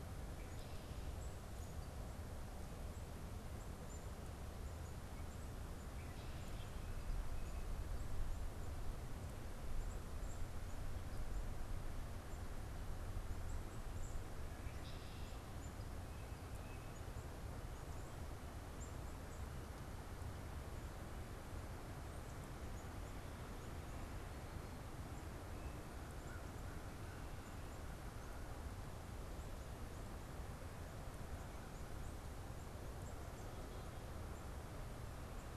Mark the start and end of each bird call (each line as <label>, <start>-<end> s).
Black-capped Chickadee (Poecile atricapillus), 0.0-23.5 s
Tufted Titmouse (Baeolophus bicolor), 16.1-17.2 s
American Crow (Corvus brachyrhynchos), 26.0-27.3 s